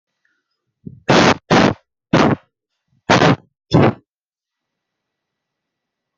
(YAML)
expert_labels:
- quality: poor
  cough_type: unknown
  dyspnea: false
  wheezing: false
  stridor: false
  choking: false
  congestion: false
  nothing: true
  diagnosis: healthy cough
  severity: pseudocough/healthy cough
- quality: poor
  cough_type: unknown
  dyspnea: false
  wheezing: false
  stridor: false
  choking: false
  congestion: false
  nothing: true
  diagnosis: upper respiratory tract infection
  severity: unknown
- quality: no cough present
  dyspnea: false
  wheezing: false
  stridor: false
  choking: false
  congestion: false
  nothing: false
- quality: poor
  cough_type: unknown
  dyspnea: false
  wheezing: false
  stridor: false
  choking: false
  congestion: false
  nothing: false
  severity: unknown
age: 24
gender: male
respiratory_condition: false
fever_muscle_pain: true
status: symptomatic